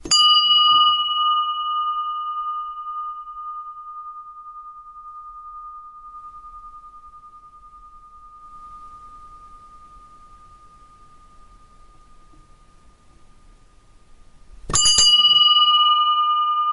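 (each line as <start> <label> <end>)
0.0 A bell with a long reverberation. 12.8
14.6 Two bells ring in quick succession. 16.7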